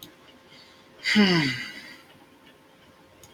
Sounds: Sigh